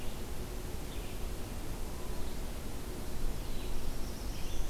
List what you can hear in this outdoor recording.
Red-eyed Vireo, Black-throated Blue Warbler